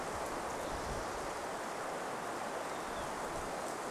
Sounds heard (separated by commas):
Spotted Towhee song, Olive-sided Flycatcher song